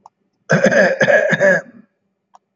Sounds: Throat clearing